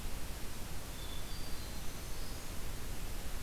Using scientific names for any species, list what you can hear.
Catharus guttatus, Setophaga virens